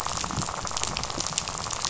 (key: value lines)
label: biophony, rattle
recorder: SoundTrap 500